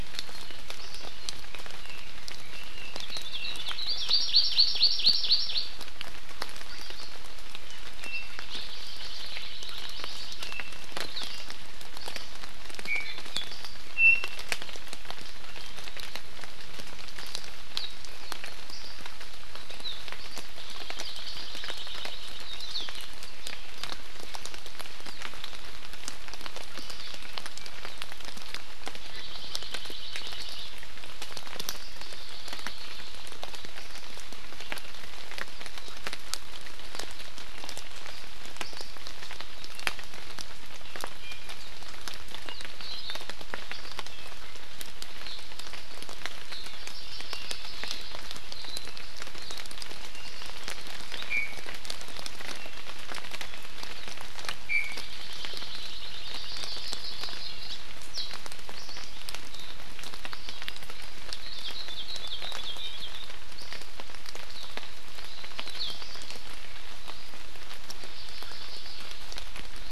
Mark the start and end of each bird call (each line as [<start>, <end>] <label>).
[1.48, 3.98] Red-billed Leiothrix (Leiothrix lutea)
[2.98, 3.98] Hawaii Akepa (Loxops coccineus)
[3.98, 5.78] Hawaii Amakihi (Chlorodrepanis virens)
[7.98, 8.38] Iiwi (Drepanis coccinea)
[8.68, 10.38] Hawaii Creeper (Loxops mana)
[12.88, 13.48] Iiwi (Drepanis coccinea)
[13.98, 14.38] Iiwi (Drepanis coccinea)
[20.58, 22.38] Hawaii Creeper (Loxops mana)
[22.48, 22.88] Hawaii Akepa (Loxops coccineus)
[28.98, 30.68] Hawaii Creeper (Loxops mana)
[31.78, 33.28] Hawaii Creeper (Loxops mana)
[41.18, 41.58] Iiwi (Drepanis coccinea)
[42.78, 43.28] Hawaii Akepa (Loxops coccineus)
[46.78, 48.28] Hawaii Creeper (Loxops mana)
[50.18, 50.48] Iiwi (Drepanis coccinea)
[51.28, 51.68] Iiwi (Drepanis coccinea)
[54.68, 55.08] Iiwi (Drepanis coccinea)
[55.08, 56.48] Hawaii Creeper (Loxops mana)
[56.48, 57.78] Hawaii Amakihi (Chlorodrepanis virens)
[61.28, 63.28] Hawaii Akepa (Loxops coccineus)
[65.58, 65.98] Hawaii Akepa (Loxops coccineus)
[68.08, 69.08] Hawaii Creeper (Loxops mana)